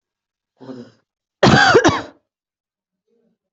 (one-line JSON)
{"expert_labels": [{"quality": "poor", "cough_type": "dry", "dyspnea": false, "wheezing": false, "stridor": true, "choking": false, "congestion": false, "nothing": false, "diagnosis": "obstructive lung disease", "severity": "mild"}]}